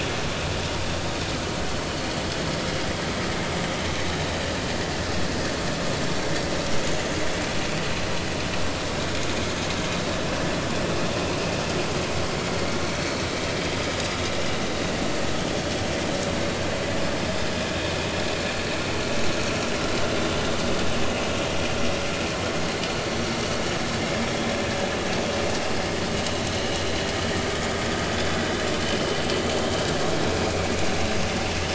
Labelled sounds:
4.2	4.4	vessel noise, 3.8 to 4.0 kHz
19.3	19.5	vessel noise, 6.4 to 6.6 kHz
30.4	30.7	vessel noise, 2.1 to 2.5 kHz

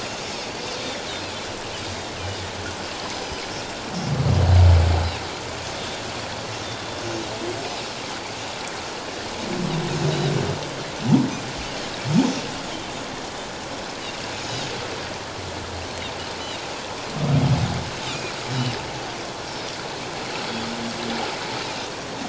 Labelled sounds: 3.1	3.5	Pacific white-sided dolphin, 4.9 to 6.1 kHz
6.6	7.0	Pacific white-sided dolphin, 3.5 to 3.7 kHz
14.0	14.2	Pacific white-sided dolphin, 2.7 to 3.0 kHz
18.1	18.3	Pacific white-sided dolphin, 2.3 to 2.6 kHz

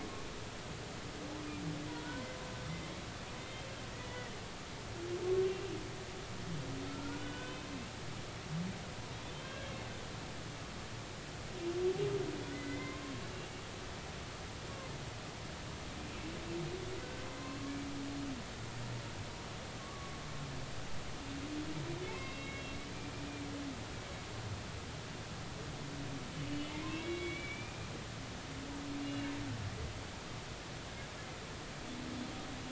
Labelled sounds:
1.9	2.3	humpback whale, 0.90 to 1.1 kHz
3.4	4.4	humpback whale, 1.8 to 2.1 kHz
5.4	5.8	humpback whale, 2.6 to 2.9 kHz
6.9	7.6	humpback whale, 1.3 to 3.0 kHz
9.3	9.7	humpback whale, 1.5 to 3.3 kHz
12.5	13.1	humpback whale, 0.96 to 2.2 kHz
19.8	20.1	humpback whale, 1.1 to 1.2 kHz
22.0	22.8	humpback whale, 2.0 to 3.9 kHz
26.5	27.8	humpback whale, 2.1 to 4.0 kHz
29.0	29.3	humpback whale, 2.8 to 2.9 kHz

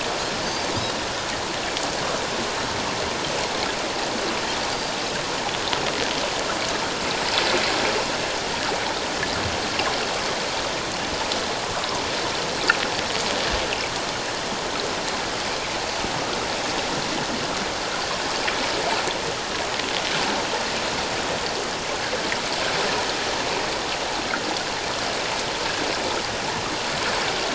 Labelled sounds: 11.8	12.1	water noise, 0.88 to 1.2 kHz

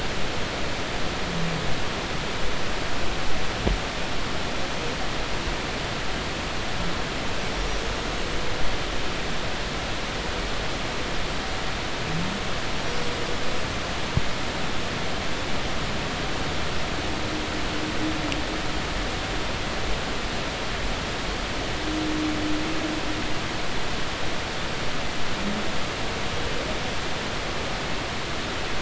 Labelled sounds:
7.5	7.8	humpback whale, 5.7 to 5.9 kHz
12.8	13.1	humpback whale, 5.6 to 5.8 kHz

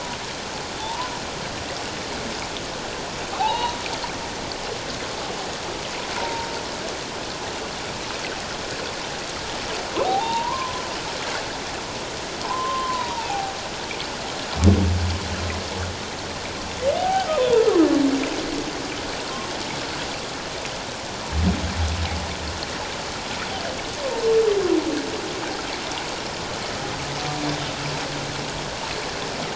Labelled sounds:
0.8	1.1	humpback whale, 0.81 to 1.1 kHz
3.3	3.8	humpback whale, 0.78 to 3.9 kHz
6.2	6.5	humpback whale, 0.88 to 1.0 kHz
10.0	10.8	humpback whale, 0.78 to 3.8 kHz
12.4	13.5	humpback whale, 0.78 to 1.1 kHz
17.0	17.8	humpback whale, 0.78 to 1.6 kHz

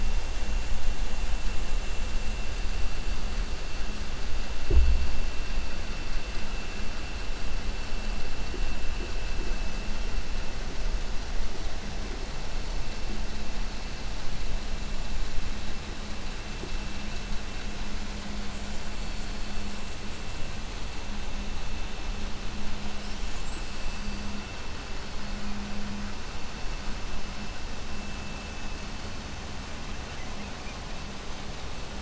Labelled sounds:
18.2	21.2	killer whale, 5.4 to 8.0 kHz
22.8	24.4	killer whale, 4.4 to 8.0 kHz
29.6	31.3	killer whale, 0.85 to 3.3 kHz

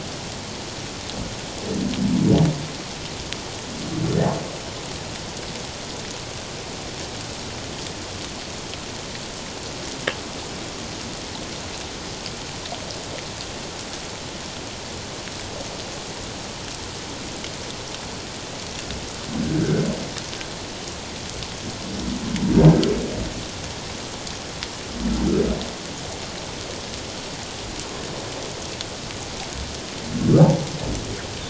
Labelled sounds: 19.6	19.8	humpback whale, 1.3 to 1.7 kHz

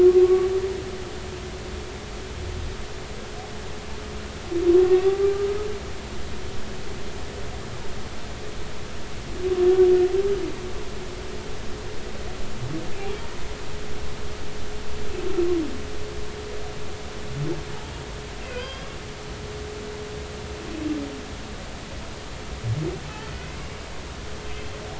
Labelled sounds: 0.0	0.5	humpback whale, 1.1 to 1.2 kHz
18.4	18.9	humpback whale, 0.96 to 5.0 kHz

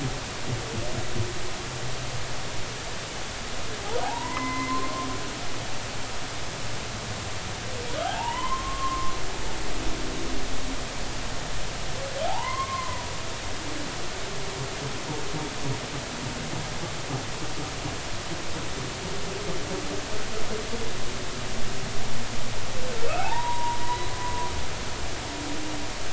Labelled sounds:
4.0	5.1	humpback whale, 0.80 to 2.1 kHz
8.0	9.2	humpback whale, 0.80 to 3.1 kHz
12.2	13.1	humpback whale, 0.80 to 2.2 kHz
23.1	24.1	humpback whale, 0.80 to 2.8 kHz

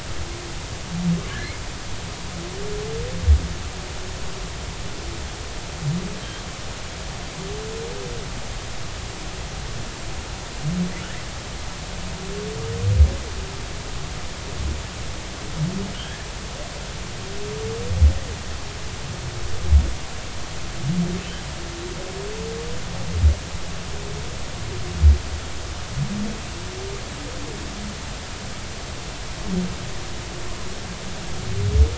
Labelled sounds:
15.9	16.3	humpback whale, 1.4 to 3.4 kHz

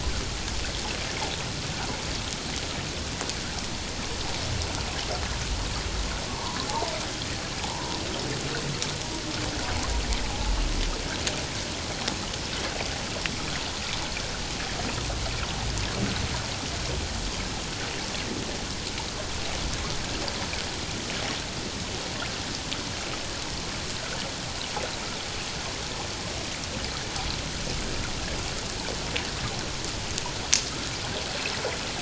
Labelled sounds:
6.3	6.9	humpback whale, 0.78 to 1.2 kHz
7.7	8.0	humpback whale, 0.81 to 1.1 kHz
10.2	10.5	humpback whale, 0.78 to 0.91 kHz

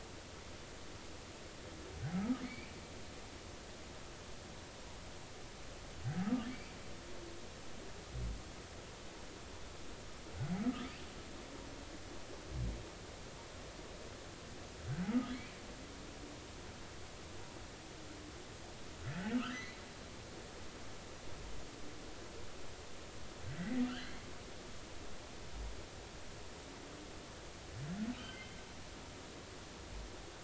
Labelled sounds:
2.1	2.7	humpback whale, 1.2 to 2.5 kHz
6.5	6.8	humpback whale, 2.2 to 2.4 kHz
19.0	19.8	humpback whale, 1.2 to 4.1 kHz
23.6	24.2	humpback whale, 1.3 to 3.3 kHz
28.2	28.5	humpback whale, 2.8 to 3.2 kHz

